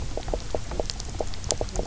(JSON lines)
{"label": "biophony, knock croak", "recorder": "SoundTrap 300"}